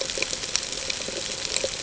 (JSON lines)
{"label": "ambient", "recorder": "HydroMoth"}